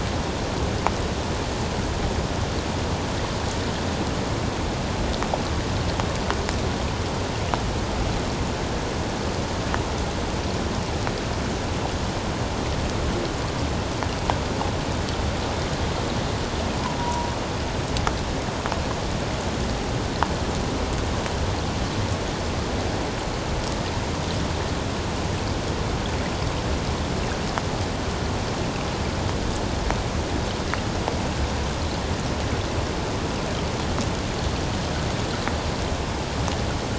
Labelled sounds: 17.0	17.3	humpback whale, 0.91 to 1.0 kHz

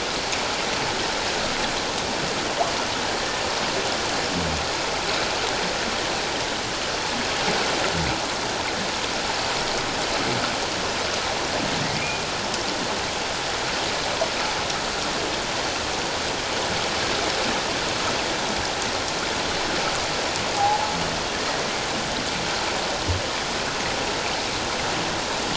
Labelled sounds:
20.6	20.9	humpback whale, 0.78 to 1.0 kHz

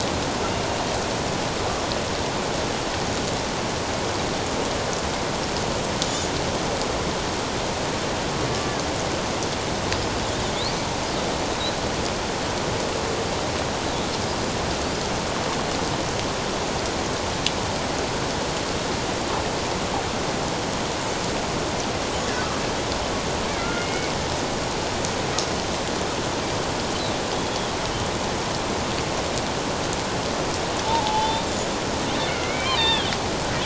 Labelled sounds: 23.6	24.1	killer whale, Bigg's (transient), 1.3 to 3.0 kHz
27.3	27.7	killer whale, Bigg's (transient), 3.2 to 3.5 kHz
30.8	31.5	killer whale, Bigg's (transient), 0.81 to 3.8 kHz
32.3	33.1	killer whale, Bigg's (transient), 0.88 to 4.2 kHz

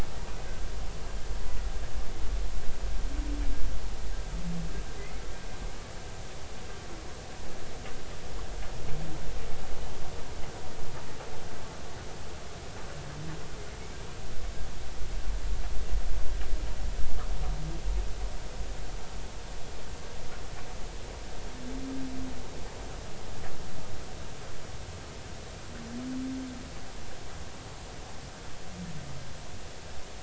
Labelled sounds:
5.0	5.2	humpback whale, 1.9 to 2.2 kHz

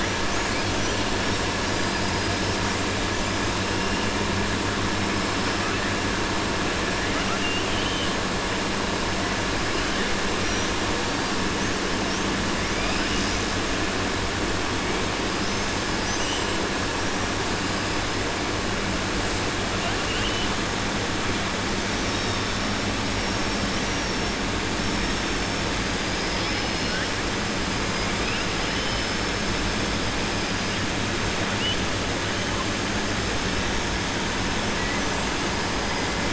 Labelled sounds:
0.5	1.0	killer whale, southern resident, 4.2 to 6.4 kHz
7.1	8.1	killer whale, southern resident, 1.3 to 3.7 kHz
12.7	13.3	killer whale, southern resident, 1.5 to 3.9 kHz
23.7	24.2	killer whale, southern resident, 5.4 to 5.8 kHz

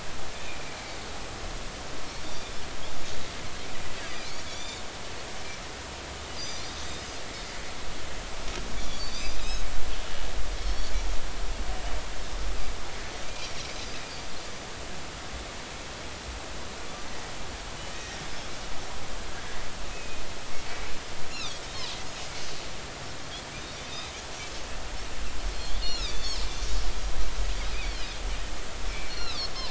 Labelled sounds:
0.4	0.8	Pacific white-sided dolphin, 2.2 to 2.7 kHz
2.3	2.6	Pacific white-sided dolphin, 5.2 to 5.5 kHz
4.0	4.8	Pacific white-sided dolphin, 2.1 to 4.9 kHz
6.3	6.9	Pacific white-sided dolphin, 3.5 to 6.1 kHz
8.8	9.6	Pacific white-sided dolphin, 3.3 to 6.3 kHz
10.6	10.9	Pacific white-sided dolphin, 4.2 to 5.7 kHz
13.2	13.5	Pacific white-sided dolphin, 2.3 to 2.5 kHz
17.9	18.2	Pacific white-sided dolphin, 1.8 to 1.9 kHz
19.9	20.2	Pacific white-sided dolphin, 2.4 to 2.6 kHz
21.3	22.0	Pacific white-sided dolphin, 3.2 to 5.6 kHz
25.7	26.3	Pacific white-sided dolphin, 2.3 to 5.8 kHz
27.7	28.1	Pacific white-sided dolphin, 2.1 to 5.0 kHz
29.1	29.5	Pacific white-sided dolphin, 3.2 to 5.7 kHz

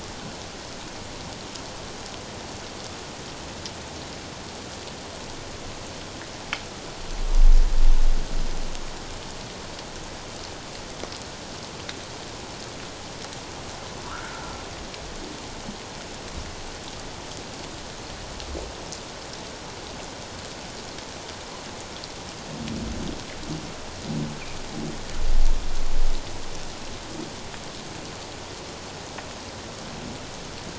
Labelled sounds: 14.1	14.4	humpback whale, 1.1 to 1.7 kHz

